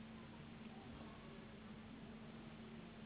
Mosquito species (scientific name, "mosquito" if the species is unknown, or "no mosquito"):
Anopheles gambiae s.s.